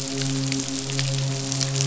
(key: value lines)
label: biophony, midshipman
recorder: SoundTrap 500